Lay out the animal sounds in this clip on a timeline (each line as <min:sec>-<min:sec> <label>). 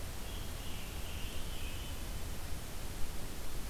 0:00.1-0:02.0 Scarlet Tanager (Piranga olivacea)